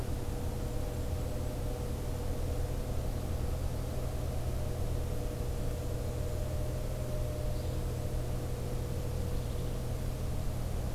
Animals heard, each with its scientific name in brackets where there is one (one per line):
Yellow-bellied Flycatcher (Empidonax flaviventris)
Golden-crowned Kinglet (Regulus satrapa)